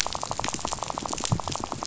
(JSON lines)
{"label": "biophony, rattle", "recorder": "SoundTrap 500"}